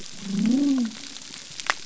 {"label": "biophony", "recorder": "SoundTrap 300"}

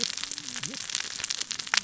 {"label": "biophony, cascading saw", "recorder": "SoundTrap 600 or HydroMoth"}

